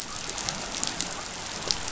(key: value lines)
label: biophony
recorder: SoundTrap 500